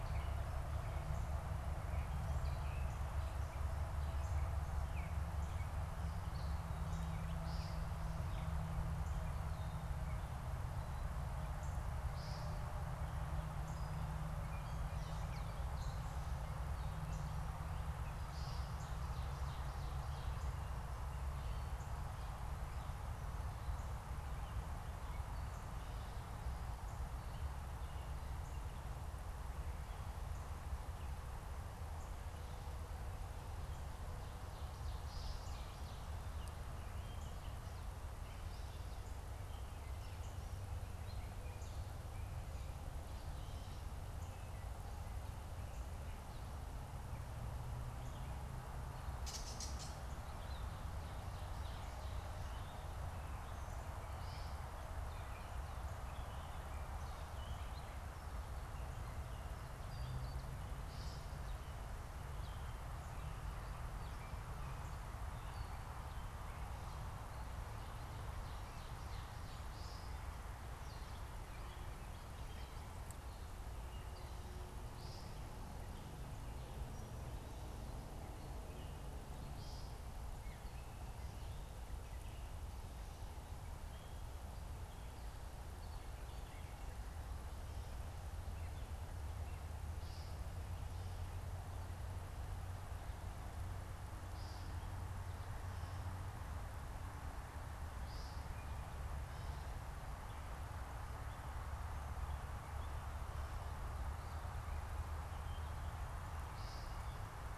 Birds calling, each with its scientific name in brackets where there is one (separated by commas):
American Woodcock (Scolopax minor), Gray Catbird (Dumetella carolinensis)